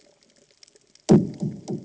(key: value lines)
label: anthrophony, bomb
recorder: HydroMoth